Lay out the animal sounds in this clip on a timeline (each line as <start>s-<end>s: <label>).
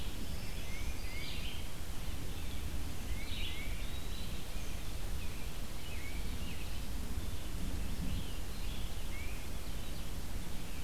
0.0s-3.7s: Red-eyed Vireo (Vireo olivaceus)
0.0s-1.5s: Black-throated Green Warbler (Setophaga virens)
0.6s-1.3s: Tufted Titmouse (Baeolophus bicolor)
2.9s-3.8s: Tufted Titmouse (Baeolophus bicolor)
3.0s-4.5s: Eastern Wood-Pewee (Contopus virens)
5.1s-6.9s: American Robin (Turdus migratorius)
7.6s-10.3s: American Robin (Turdus migratorius)
8.9s-9.6s: Tufted Titmouse (Baeolophus bicolor)